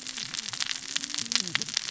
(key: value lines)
label: biophony, cascading saw
recorder: SoundTrap 600 or HydroMoth